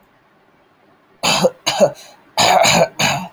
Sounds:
Throat clearing